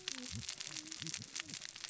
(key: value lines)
label: biophony, cascading saw
recorder: SoundTrap 600 or HydroMoth